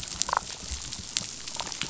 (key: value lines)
label: biophony, damselfish
recorder: SoundTrap 500